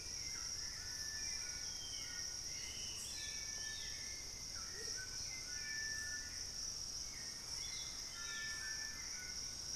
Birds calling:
Hauxwell's Thrush (Turdus hauxwelli), White-throated Toucan (Ramphastos tucanus), Plain-winged Antshrike (Thamnophilus schistaceus), Black-spotted Bare-eye (Phlegopsis nigromaculata)

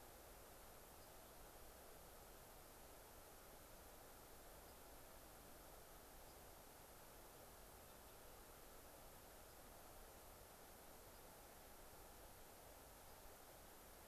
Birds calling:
White-crowned Sparrow (Zonotrichia leucophrys)

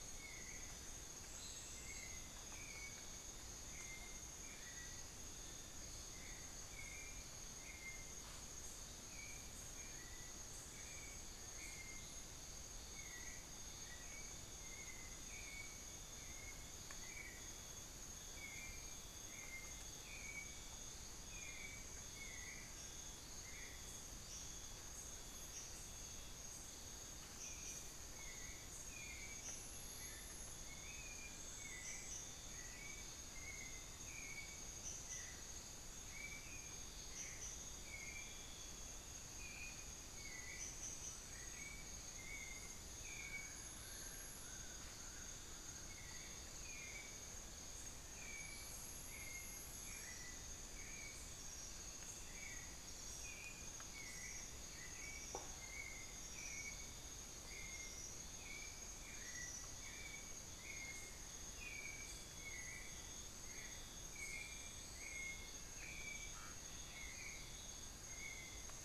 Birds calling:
unidentified bird, White-necked Thrush (Turdus albicollis)

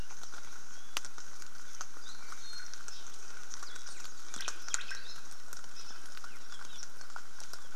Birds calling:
Omao (Myadestes obscurus), Apapane (Himatione sanguinea), Iiwi (Drepanis coccinea), Warbling White-eye (Zosterops japonicus)

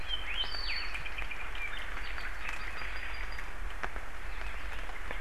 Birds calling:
Apapane (Himatione sanguinea), Hawaii Elepaio (Chasiempis sandwichensis)

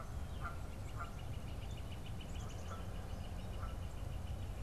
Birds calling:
Black-capped Chickadee (Poecile atricapillus), Canada Goose (Branta canadensis), Northern Flicker (Colaptes auratus)

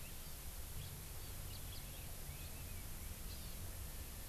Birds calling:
Hawaii Amakihi (Chlorodrepanis virens), House Finch (Haemorhous mexicanus)

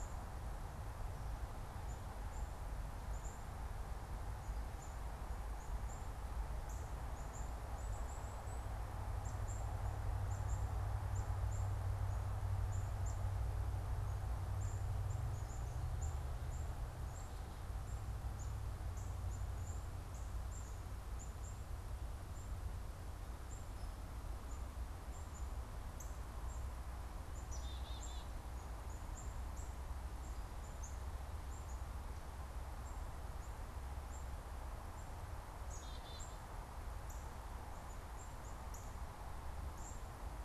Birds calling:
Black-capped Chickadee (Poecile atricapillus), Northern Cardinal (Cardinalis cardinalis)

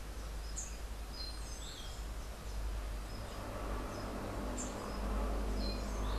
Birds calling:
Rufous-capped Warbler (Basileuterus rufifrons), Orange-billed Nightingale-Thrush (Catharus aurantiirostris)

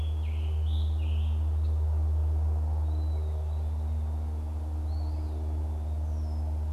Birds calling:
Eastern Wood-Pewee (Contopus virens), Red-winged Blackbird (Agelaius phoeniceus), Scarlet Tanager (Piranga olivacea)

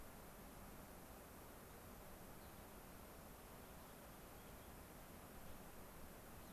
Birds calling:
Rock Wren (Salpinctes obsoletus), Gray-crowned Rosy-Finch (Leucosticte tephrocotis)

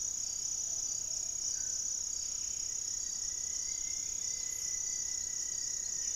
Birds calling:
Rufous-fronted Antthrush (Formicarius rufifrons), Buff-breasted Wren (Cantorchilus leucotis), Plumbeous Pigeon (Patagioenas plumbea), Gray-fronted Dove (Leptotila rufaxilla)

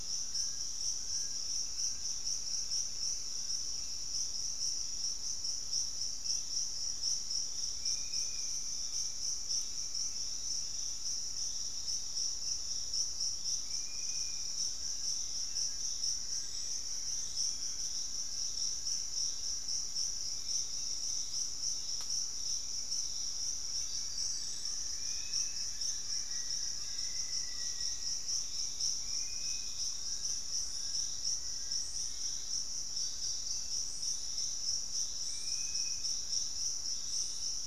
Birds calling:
Black-faced Antthrush (Formicarius analis), Dusky-capped Flycatcher (Myiarchus tuberculifer), unidentified bird, Buff-throated Woodcreeper (Xiphorhynchus guttatus), Fasciated Antshrike (Cymbilaimus lineatus), Bluish-fronted Jacamar (Galbula cyanescens), Pygmy Antwren (Myrmotherula brachyura)

